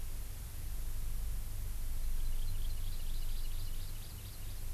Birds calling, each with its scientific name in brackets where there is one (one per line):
Hawaii Amakihi (Chlorodrepanis virens)